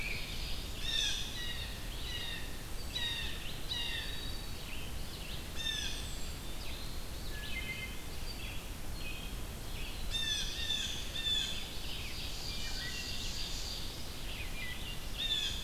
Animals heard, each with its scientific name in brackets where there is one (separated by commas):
Eastern Wood-Pewee (Contopus virens), Wood Thrush (Hylocichla mustelina), Ovenbird (Seiurus aurocapilla), Red-eyed Vireo (Vireo olivaceus), Black-throated Blue Warbler (Setophaga caerulescens), Blue Jay (Cyanocitta cristata)